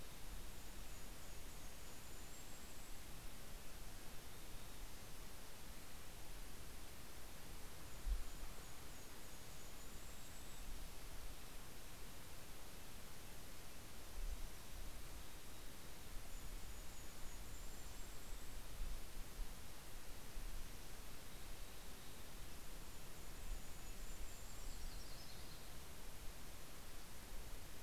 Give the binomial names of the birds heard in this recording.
Poecile gambeli, Regulus satrapa, Sitta canadensis, Setophaga coronata